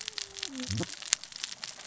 {"label": "biophony, cascading saw", "recorder": "SoundTrap 600 or HydroMoth"}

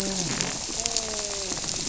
{"label": "biophony, grouper", "recorder": "SoundTrap 300"}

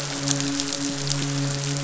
{"label": "biophony, midshipman", "recorder": "SoundTrap 500"}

